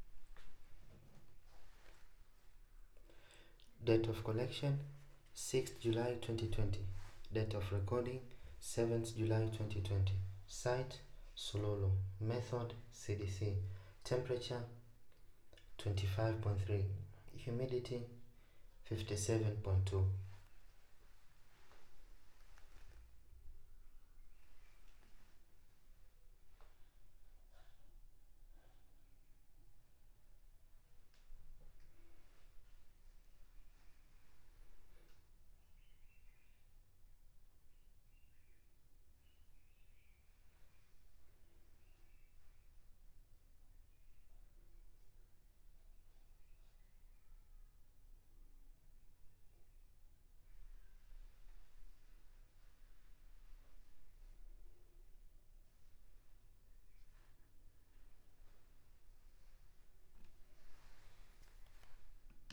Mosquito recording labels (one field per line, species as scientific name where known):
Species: no mosquito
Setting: cup